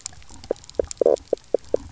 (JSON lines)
{"label": "biophony, knock croak", "recorder": "SoundTrap 300"}